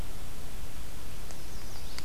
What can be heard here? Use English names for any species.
Chestnut-sided Warbler